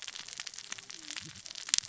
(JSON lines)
{"label": "biophony, cascading saw", "recorder": "SoundTrap 600 or HydroMoth"}